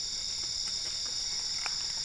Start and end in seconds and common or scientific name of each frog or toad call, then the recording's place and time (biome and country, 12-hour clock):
none
Cerrado, Brazil, 2:45am